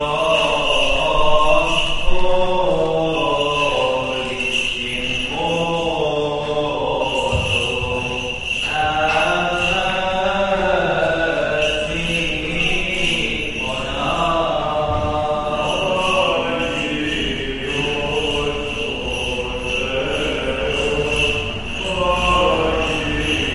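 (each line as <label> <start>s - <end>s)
At least two people chant while a hand instrument clicks occasionally during a Greek Orthodox church service. 0.0s - 23.5s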